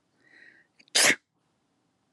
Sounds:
Sneeze